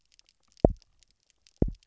{"label": "biophony, double pulse", "recorder": "SoundTrap 300"}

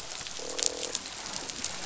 {"label": "biophony, croak", "recorder": "SoundTrap 500"}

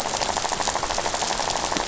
{"label": "biophony, rattle", "recorder": "SoundTrap 500"}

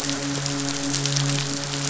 {"label": "biophony, midshipman", "recorder": "SoundTrap 500"}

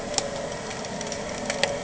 {"label": "anthrophony, boat engine", "recorder": "HydroMoth"}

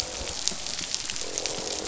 {"label": "biophony, croak", "recorder": "SoundTrap 500"}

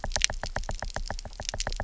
{"label": "biophony, knock", "recorder": "SoundTrap 300"}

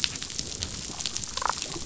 {"label": "biophony, damselfish", "recorder": "SoundTrap 500"}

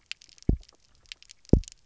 {"label": "biophony, double pulse", "recorder": "SoundTrap 300"}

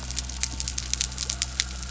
{"label": "anthrophony, boat engine", "recorder": "SoundTrap 300"}
{"label": "biophony", "recorder": "SoundTrap 300"}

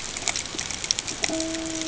{"label": "ambient", "recorder": "HydroMoth"}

